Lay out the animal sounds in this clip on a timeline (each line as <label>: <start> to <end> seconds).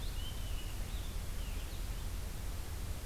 Purple Finch (Haemorhous purpureus): 0.0 to 2.1 seconds